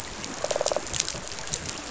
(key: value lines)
label: biophony, rattle response
recorder: SoundTrap 500